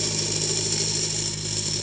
{"label": "anthrophony, boat engine", "recorder": "HydroMoth"}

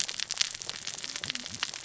{"label": "biophony, cascading saw", "recorder": "SoundTrap 600 or HydroMoth"}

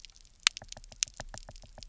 {"label": "biophony, knock", "recorder": "SoundTrap 300"}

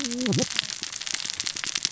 {"label": "biophony, cascading saw", "recorder": "SoundTrap 600 or HydroMoth"}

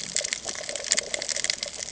{"label": "ambient", "recorder": "HydroMoth"}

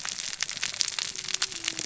{"label": "biophony, cascading saw", "recorder": "SoundTrap 600 or HydroMoth"}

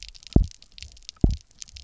{"label": "biophony, double pulse", "recorder": "SoundTrap 300"}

